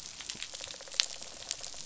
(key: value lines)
label: biophony, rattle response
recorder: SoundTrap 500